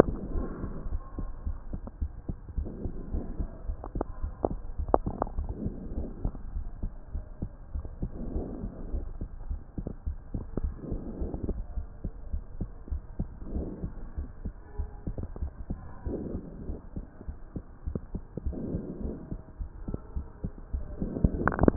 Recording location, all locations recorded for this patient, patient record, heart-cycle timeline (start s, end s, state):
pulmonary valve (PV)
aortic valve (AV)+pulmonary valve (PV)
#Age: nan
#Sex: Female
#Height: nan
#Weight: nan
#Pregnancy status: True
#Murmur: Absent
#Murmur locations: nan
#Most audible location: nan
#Systolic murmur timing: nan
#Systolic murmur shape: nan
#Systolic murmur grading: nan
#Systolic murmur pitch: nan
#Systolic murmur quality: nan
#Diastolic murmur timing: nan
#Diastolic murmur shape: nan
#Diastolic murmur grading: nan
#Diastolic murmur pitch: nan
#Diastolic murmur quality: nan
#Outcome: Normal
#Campaign: 2015 screening campaign
0.16	0.32	diastole
0.32	0.50	S1
0.50	0.62	systole
0.62	0.72	S2
0.72	0.90	diastole
0.90	1.02	S1
1.02	1.16	systole
1.16	1.28	S2
1.28	1.44	diastole
1.44	1.58	S1
1.58	1.72	systole
1.72	1.82	S2
1.82	2.00	diastole
2.00	2.12	S1
2.12	2.28	systole
2.28	2.36	S2
2.36	2.54	diastole
2.54	2.68	S1
2.68	2.82	systole
2.82	2.92	S2
2.92	3.10	diastole
3.10	3.22	S1
3.22	3.36	systole
3.36	3.50	S2
3.50	3.66	diastole
3.66	3.76	S1
3.76	3.92	systole
3.92	4.04	S2
4.04	4.20	diastole
4.20	4.34	S1
4.34	4.52	systole
4.52	4.62	S2
4.62	4.78	diastole
4.78	4.92	S1
4.92	5.04	systole
5.04	5.14	S2
5.14	5.34	diastole
5.34	5.48	S1
5.48	5.60	systole
5.60	5.74	S2
5.74	5.92	diastole
5.92	6.08	S1
6.08	6.22	systole
6.22	6.32	S2
6.32	6.52	diastole
6.52	6.64	S1
6.64	6.80	systole
6.80	6.90	S2
6.90	7.12	diastole
7.12	7.24	S1
7.24	7.42	systole
7.42	7.52	S2
7.52	7.72	diastole
7.72	7.86	S1
7.86	8.00	systole
8.00	8.12	S2
8.12	8.30	diastole
8.30	8.48	S1
8.48	8.62	systole
8.62	8.72	S2
8.72	8.92	diastole
8.92	9.06	S1
9.06	9.20	systole
9.20	9.28	S2
9.28	9.48	diastole
9.48	9.60	S1
9.60	9.78	systole
9.78	9.88	S2
9.88	10.06	diastole
10.06	10.18	S1
10.18	10.32	systole
10.32	10.46	S2
10.46	10.62	diastole
10.62	10.76	S1
10.76	10.88	systole
10.88	11.00	S2
11.00	11.18	diastole
11.18	11.32	S1
11.32	11.42	systole
11.42	11.56	S2
11.56	11.74	diastole
11.74	11.88	S1
11.88	12.04	systole
12.04	12.12	S2
12.12	12.32	diastole
12.32	12.44	S1
12.44	12.58	systole
12.58	12.70	S2
12.70	12.90	diastole
12.90	13.02	S1
13.02	13.20	systole
13.20	13.30	S2
13.30	13.50	diastole
13.50	13.68	S1
13.68	13.84	systole
13.84	13.94	S2
13.94	14.16	diastole
14.16	14.28	S1
14.28	14.44	systole
14.44	14.54	S2
14.54	14.78	diastole
14.78	14.90	S1
14.90	15.08	systole
15.08	15.18	S2
15.18	15.40	diastole
15.40	15.52	S1
15.52	15.70	systole
15.70	15.80	S2
15.80	16.04	diastole
16.04	16.20	S1
16.20	16.34	systole
16.34	16.44	S2
16.44	16.66	diastole
16.66	16.78	S1
16.78	16.96	systole
16.96	17.04	S2
17.04	17.26	diastole
17.26	17.36	S1
17.36	17.52	systole
17.52	17.62	S2
17.62	17.86	diastole
17.86	18.00	S1
18.00	18.14	systole
18.14	18.22	S2
18.22	18.44	diastole
18.44	18.58	S1
18.58	18.70	systole
18.70	18.84	S2
18.84	19.02	diastole
19.02	19.16	S1
19.16	19.30	systole
19.30	19.40	S2
19.40	19.60	diastole
19.60	19.70	S1
19.70	19.86	systole
19.86	20.00	S2
20.00	20.16	diastole
20.16	20.26	S1
20.26	20.42	systole
20.42	20.52	S2
20.52	20.72	diastole
20.72	20.84	S1
20.84	21.00	systole
21.00	21.12	S2
21.12	21.32	diastole
21.32	21.50	S1
21.50	21.62	systole
21.62	21.76	S2